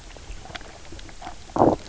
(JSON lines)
{"label": "biophony, knock croak", "recorder": "SoundTrap 300"}